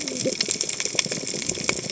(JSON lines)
{"label": "biophony, cascading saw", "recorder": "HydroMoth"}